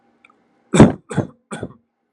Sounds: Cough